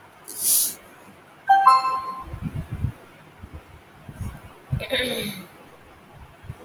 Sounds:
Throat clearing